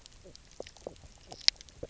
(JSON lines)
{"label": "biophony, knock croak", "recorder": "SoundTrap 300"}